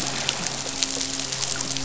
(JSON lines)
{"label": "biophony, midshipman", "recorder": "SoundTrap 500"}